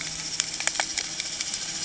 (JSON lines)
{"label": "anthrophony, boat engine", "recorder": "HydroMoth"}